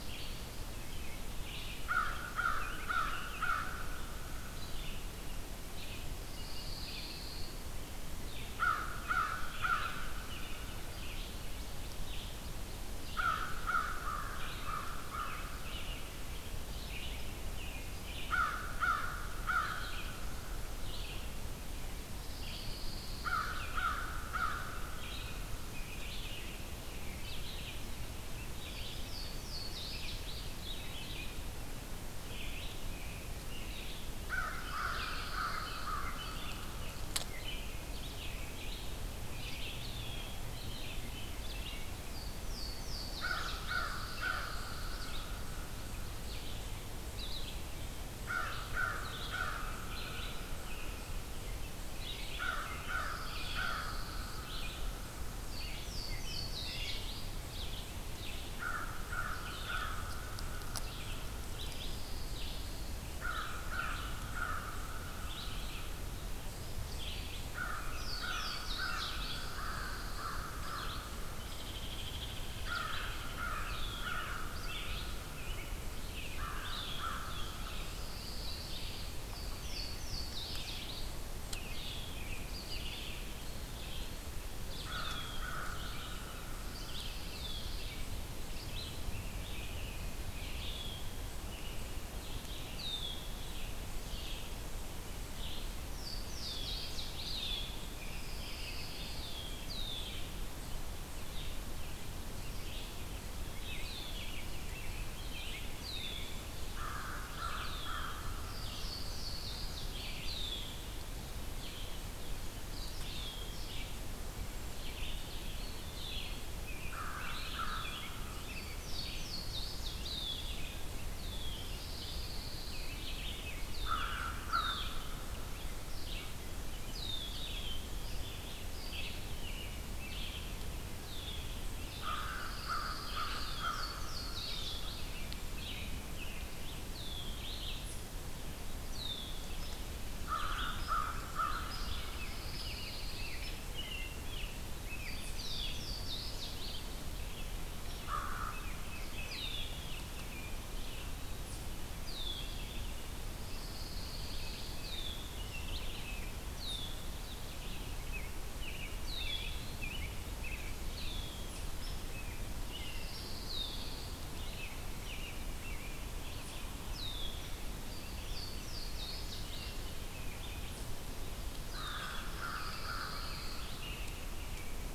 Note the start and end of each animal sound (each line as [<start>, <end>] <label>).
[0.00, 66.21] Red-eyed Vireo (Vireo olivaceus)
[0.53, 4.14] American Robin (Turdus migratorius)
[1.73, 4.75] American Crow (Corvus brachyrhynchos)
[6.15, 7.62] Pine Warbler (Setophaga pinus)
[8.49, 10.41] American Crow (Corvus brachyrhynchos)
[9.53, 11.45] American Robin (Turdus migratorius)
[13.05, 15.79] American Crow (Corvus brachyrhynchos)
[18.23, 20.25] American Crow (Corvus brachyrhynchos)
[22.07, 23.73] Pine Warbler (Setophaga pinus)
[23.08, 25.17] American Crow (Corvus brachyrhynchos)
[25.57, 28.93] American Robin (Turdus migratorius)
[28.87, 31.52] Louisiana Waterthrush (Parkesia motacilla)
[32.75, 35.40] American Robin (Turdus migratorius)
[34.20, 36.31] American Crow (Corvus brachyrhynchos)
[34.63, 36.09] Pine Warbler (Setophaga pinus)
[37.13, 41.85] American Robin (Turdus migratorius)
[41.98, 43.97] Louisiana Waterthrush (Parkesia motacilla)
[43.09, 45.81] American Crow (Corvus brachyrhynchos)
[43.67, 45.15] Pine Warbler (Setophaga pinus)
[44.32, 51.19] Eastern Chipmunk (Tamias striatus)
[48.20, 50.82] American Crow (Corvus brachyrhynchos)
[50.47, 53.90] American Robin (Turdus migratorius)
[52.05, 55.60] American Crow (Corvus brachyrhynchos)
[52.89, 54.41] Pine Warbler (Setophaga pinus)
[55.44, 57.35] Louisiana Waterthrush (Parkesia motacilla)
[58.48, 61.50] American Crow (Corvus brachyrhynchos)
[61.65, 63.04] Pine Warbler (Setophaga pinus)
[63.18, 66.03] American Crow (Corvus brachyrhynchos)
[66.89, 75.12] Red-eyed Vireo (Vireo olivaceus)
[67.47, 71.40] American Crow (Corvus brachyrhynchos)
[67.94, 69.55] Louisiana Waterthrush (Parkesia motacilla)
[69.07, 70.61] Pine Warbler (Setophaga pinus)
[71.42, 72.62] Hairy Woodpecker (Dryobates villosus)
[72.51, 77.85] American Crow (Corvus brachyrhynchos)
[73.64, 74.23] Red-winged Blackbird (Agelaius phoeniceus)
[73.96, 78.02] American Robin (Turdus migratorius)
[76.20, 137.88] Red-eyed Vireo (Vireo olivaceus)
[76.49, 77.34] Red-winged Blackbird (Agelaius phoeniceus)
[77.85, 79.44] Pine Warbler (Setophaga pinus)
[79.28, 81.22] Louisiana Waterthrush (Parkesia motacilla)
[81.68, 82.34] Red-winged Blackbird (Agelaius phoeniceus)
[84.74, 86.71] American Crow (Corvus brachyrhynchos)
[84.86, 85.58] Red-winged Blackbird (Agelaius phoeniceus)
[86.46, 88.14] Pine Warbler (Setophaga pinus)
[92.71, 93.32] Red-winged Blackbird (Agelaius phoeniceus)
[95.86, 97.85] Louisiana Waterthrush (Parkesia motacilla)
[96.35, 97.69] Red-winged Blackbird (Agelaius phoeniceus)
[97.89, 99.54] American Robin (Turdus migratorius)
[98.10, 99.46] Pine Warbler (Setophaga pinus)
[99.06, 100.24] Red-winged Blackbird (Agelaius phoeniceus)
[100.64, 106.39] American Robin (Turdus migratorius)
[103.73, 104.30] Red-winged Blackbird (Agelaius phoeniceus)
[106.61, 108.83] American Crow (Corvus brachyrhynchos)
[107.42, 108.00] Red-winged Blackbird (Agelaius phoeniceus)
[108.45, 111.14] Louisiana Waterthrush (Parkesia motacilla)
[110.14, 110.91] Red-winged Blackbird (Agelaius phoeniceus)
[112.88, 113.68] Red-winged Blackbird (Agelaius phoeniceus)
[113.91, 114.94] Cedar Waxwing (Bombycilla cedrorum)
[115.41, 116.55] Eastern Wood-Pewee (Contopus virens)
[115.49, 118.47] American Robin (Turdus migratorius)
[115.88, 116.40] Red-winged Blackbird (Agelaius phoeniceus)
[116.84, 118.53] American Crow (Corvus brachyrhynchos)
[117.53, 118.23] Red-winged Blackbird (Agelaius phoeniceus)
[118.50, 120.76] Louisiana Waterthrush (Parkesia motacilla)
[121.07, 121.69] Red-winged Blackbird (Agelaius phoeniceus)
[121.63, 123.11] Pine Warbler (Setophaga pinus)
[123.75, 125.22] American Crow (Corvus brachyrhynchos)
[124.44, 125.05] Red-winged Blackbird (Agelaius phoeniceus)
[126.85, 127.36] Red-winged Blackbird (Agelaius phoeniceus)
[128.72, 130.59] American Robin (Turdus migratorius)
[130.99, 131.80] Red-winged Blackbird (Agelaius phoeniceus)
[131.87, 134.60] American Crow (Corvus brachyrhynchos)
[132.15, 133.74] Pine Warbler (Setophaga pinus)
[133.41, 135.37] Louisiana Waterthrush (Parkesia motacilla)
[134.41, 136.86] American Robin (Turdus migratorius)
[136.83, 137.40] Red-winged Blackbird (Agelaius phoeniceus)
[138.83, 139.47] Red-winged Blackbird (Agelaius phoeniceus)
[139.50, 139.77] Hairy Woodpecker (Dryobates villosus)
[140.18, 142.40] American Crow (Corvus brachyrhynchos)
[140.72, 140.97] Hairy Woodpecker (Dryobates villosus)
[141.60, 141.81] Hairy Woodpecker (Dryobates villosus)
[141.75, 143.75] Pine Warbler (Setophaga pinus)
[142.12, 145.21] American Robin (Turdus migratorius)
[143.28, 143.62] Hairy Woodpecker (Dryobates villosus)
[145.15, 147.28] Louisiana Waterthrush (Parkesia motacilla)
[145.32, 145.81] Red-winged Blackbird (Agelaius phoeniceus)
[147.86, 148.81] American Crow (Corvus brachyrhynchos)
[148.40, 149.62] Tufted Titmouse (Baeolophus bicolor)
[148.66, 151.19] American Robin (Turdus migratorius)
[149.01, 149.81] Red-winged Blackbird (Agelaius phoeniceus)
[151.95, 152.95] Red-winged Blackbird (Agelaius phoeniceus)
[153.22, 154.83] Pine Warbler (Setophaga pinus)
[154.19, 156.05] American Robin (Turdus migratorius)
[154.78, 155.42] Red-winged Blackbird (Agelaius phoeniceus)
[156.36, 157.27] Red-winged Blackbird (Agelaius phoeniceus)
[157.82, 161.30] American Robin (Turdus migratorius)
[158.84, 159.88] Red-winged Blackbird (Agelaius phoeniceus)
[160.73, 161.54] Red-winged Blackbird (Agelaius phoeniceus)
[162.02, 163.13] American Robin (Turdus migratorius)
[162.62, 164.28] Pine Warbler (Setophaga pinus)
[163.36, 164.06] Red-winged Blackbird (Agelaius phoeniceus)
[164.18, 166.73] American Robin (Turdus migratorius)
[166.80, 167.74] Red-winged Blackbird (Agelaius phoeniceus)
[168.20, 169.94] Louisiana Waterthrush (Parkesia motacilla)
[169.23, 170.74] American Robin (Turdus migratorius)
[171.65, 173.79] American Crow (Corvus brachyrhynchos)
[171.74, 174.81] American Robin (Turdus migratorius)
[172.19, 173.89] Pine Warbler (Setophaga pinus)